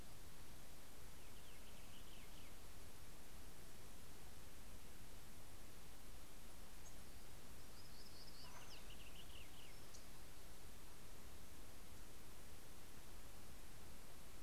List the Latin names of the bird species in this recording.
Haemorhous purpureus, Setophaga nigrescens